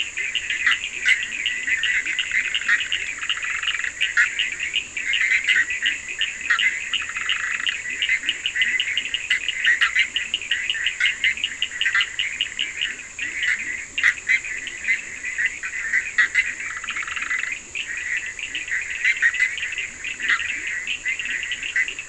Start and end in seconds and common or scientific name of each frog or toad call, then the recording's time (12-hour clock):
0.0	18.8	Leptodactylus latrans
0.0	22.0	Bischoff's tree frog
0.0	22.0	Cochran's lime tree frog
19.9	21.8	Leptodactylus latrans
3:30am